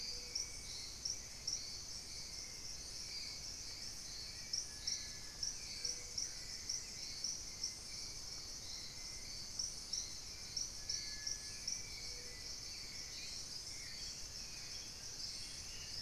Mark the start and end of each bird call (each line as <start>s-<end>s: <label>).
0.0s-16.0s: Hauxwell's Thrush (Turdus hauxwelli)
5.3s-6.7s: Collared Trogon (Trogon collaris)
14.2s-15.6s: Collared Trogon (Trogon collaris)
15.0s-16.0s: Dusky-throated Antshrike (Thamnomanes ardesiacus)